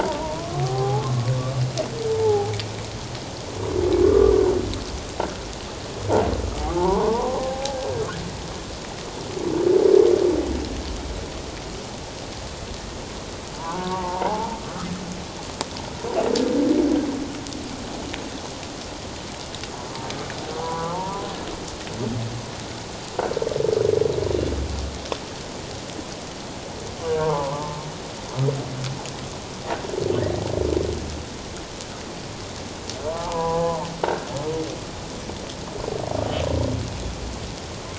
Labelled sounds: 0.0	1.1	humpback whale, 0.78 to 1.1 kHz
2.1	2.5	humpback whale, 0.78 to 0.94 kHz
4.0	4.4	humpback whale, 1.1 to 1.2 kHz
6.8	7.8	humpback whale, 0.78 to 1.2 kHz
13.6	14.5	humpback whale, 0.78 to 1.6 kHz
20.6	21.3	humpback whale, 0.81 to 1.2 kHz
27.1	27.8	humpback whale, 0.81 to 1.6 kHz
33.1	33.9	humpback whale, 0.78 to 1.2 kHz

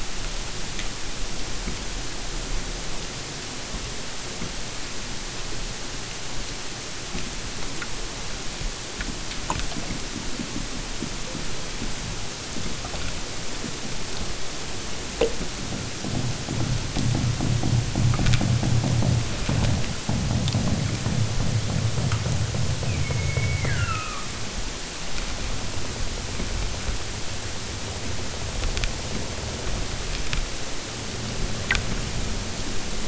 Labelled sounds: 22.8	24.4	killer whale, southern Alaska resident, 0.92 to 6.9 kHz

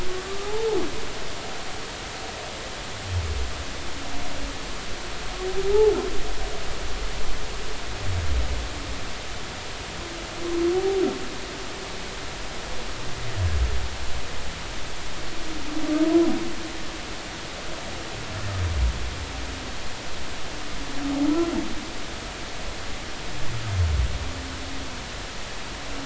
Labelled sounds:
0.4	0.7	humpback whale, 0.80 to 0.99 kHz

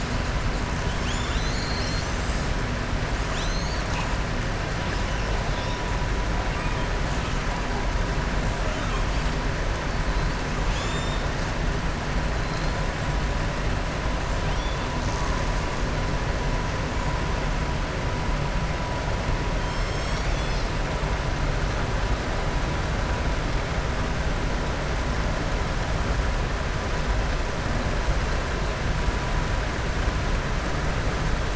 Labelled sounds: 14.4	14.8	killer whale, southern resident, 2.4 to 3.5 kHz

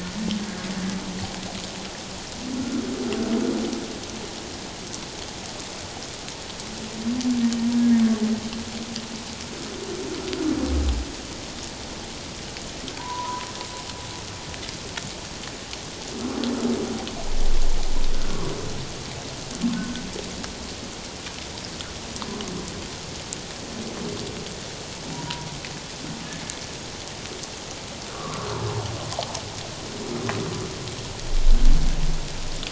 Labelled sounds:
0.4	0.7	humpback whale, 1.6 to 1.7 kHz
2.6	2.8	humpback whale, 1.2 to 1.5 kHz
7.8	8.0	humpback whale, 1.6 to 1.7 kHz
13.0	13.5	humpback whale, 0.91 to 1.1 kHz
19.7	20.0	humpback whale, 1.4 to 1.6 kHz
28.1	28.5	humpback whale, 1.0 to 1.4 kHz

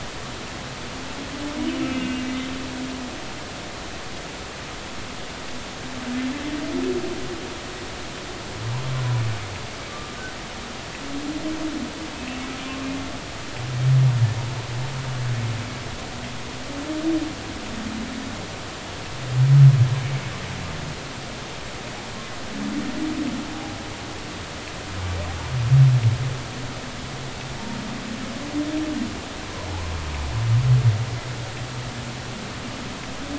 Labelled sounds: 1.8	2.2	humpback whale, 2.8 to 2.9 kHz
9.9	10.2	humpback whale, 1.15 to 1.22 kHz
12.2	12.4	humpback whale, 2.5 to 2.7 kHz

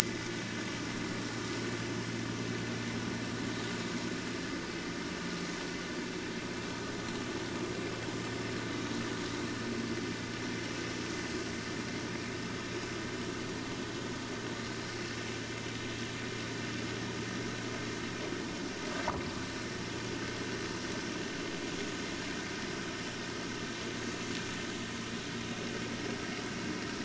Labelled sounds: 0.0	0.5	vessel noise, 1.4 to 2.0 kHz

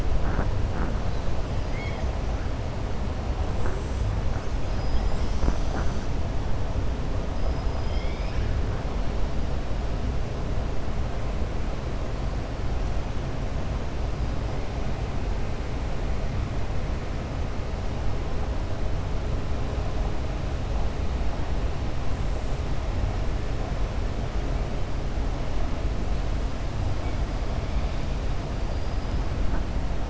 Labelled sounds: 7.4	8.5	killer whale, 1.7 to 5.6 kHz

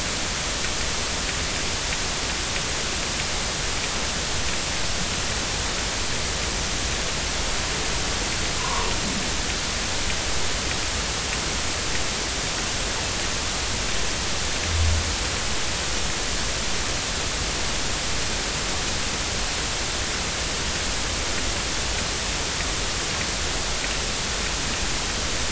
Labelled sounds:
8.6	8.9	noise likely from the mooring, 0.90 to 1.2 kHz

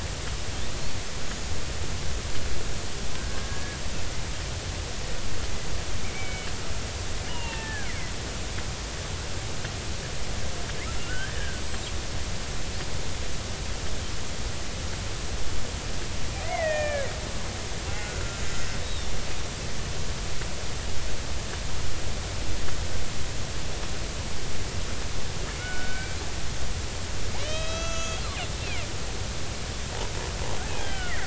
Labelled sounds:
3.3	3.8	killer whale, Bigg's (transient), 1.5 to 1.8 kHz
6.0	6.5	killer whale, Bigg's (transient), 2.2 to 3.1 kHz
7.3	7.9	killer whale, Bigg's (transient), 0.83 to 3.0 kHz
11.0	11.8	killer whale, Bigg's (transient), 1.3 to 7.9 kHz
16.4	17.1	killer whale, Bigg's (transient), 1.6 to 3.2 kHz
17.9	19.1	killer whale, Bigg's (transient), 1.3 to 3.9 kHz
25.5	26.2	killer whale, Bigg's (transient), 1.4 to 2.4 kHz
27.4	28.3	killer whale, Bigg's (transient), 1.2 to 7.3 kHz
30.8	31.2	killer whale, Bigg's (transient), 1.3 to 3.3 kHz

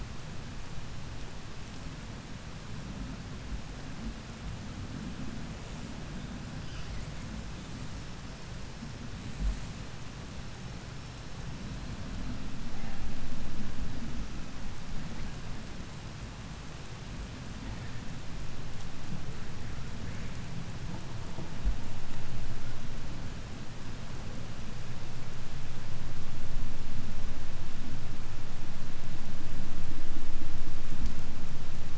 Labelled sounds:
8.6	12.6	killer whale, 3.5 to 6.1 kHz

